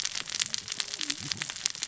{"label": "biophony, cascading saw", "recorder": "SoundTrap 600 or HydroMoth"}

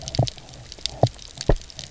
{"label": "biophony, double pulse", "recorder": "SoundTrap 300"}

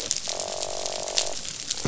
{"label": "biophony, croak", "recorder": "SoundTrap 500"}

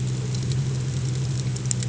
{"label": "anthrophony, boat engine", "recorder": "HydroMoth"}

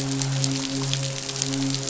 {"label": "biophony, midshipman", "recorder": "SoundTrap 500"}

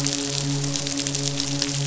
{"label": "biophony, midshipman", "recorder": "SoundTrap 500"}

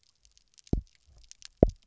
{"label": "biophony, double pulse", "recorder": "SoundTrap 300"}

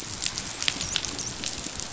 {"label": "biophony, dolphin", "recorder": "SoundTrap 500"}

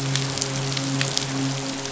{"label": "biophony, midshipman", "recorder": "SoundTrap 500"}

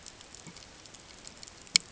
{"label": "ambient", "recorder": "HydroMoth"}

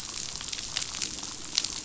{"label": "biophony, damselfish", "recorder": "SoundTrap 500"}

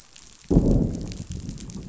{"label": "biophony, growl", "recorder": "SoundTrap 500"}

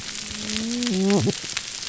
{"label": "biophony, whup", "recorder": "SoundTrap 300"}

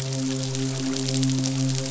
{"label": "biophony, midshipman", "recorder": "SoundTrap 500"}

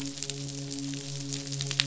{"label": "biophony, midshipman", "recorder": "SoundTrap 500"}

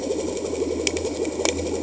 {"label": "anthrophony, boat engine", "recorder": "HydroMoth"}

